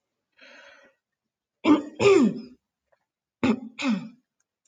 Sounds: Throat clearing